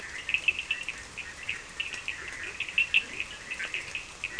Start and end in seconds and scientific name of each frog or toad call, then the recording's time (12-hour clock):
0.0	4.3	Boana bischoffi
0.0	4.3	Sphaenorhynchus surdus
2.1	3.5	Leptodactylus latrans
10:30pm